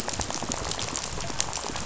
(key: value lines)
label: biophony, rattle
recorder: SoundTrap 500